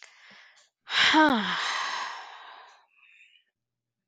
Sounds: Sigh